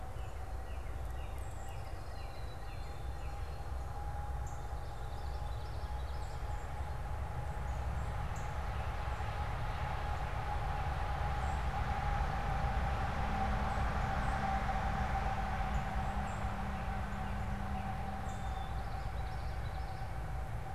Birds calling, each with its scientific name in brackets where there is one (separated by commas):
Northern Cardinal (Cardinalis cardinalis), Black-capped Chickadee (Poecile atricapillus), Common Yellowthroat (Geothlypis trichas), unidentified bird